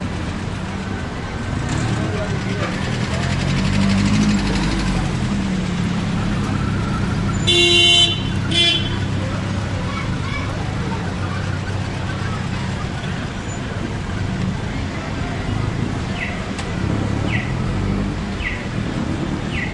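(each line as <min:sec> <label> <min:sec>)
0:00.0 Steady ambient traffic noise in the background. 0:19.7
0:01.5 An engine starts with a loud roar. 0:07.4
0:07.4 A car horn honks twice and gradually fades away. 0:09.0
0:16.7 Birds tweet repeatedly in the background. 0:19.7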